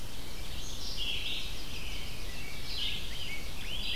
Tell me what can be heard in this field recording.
Red-eyed Vireo, Chestnut-sided Warbler, American Robin, Ovenbird, Rose-breasted Grosbeak